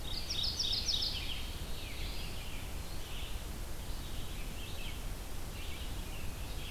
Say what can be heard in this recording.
Mourning Warbler, Red-eyed Vireo, Black-throated Blue Warbler